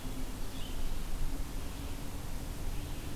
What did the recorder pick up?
Red-eyed Vireo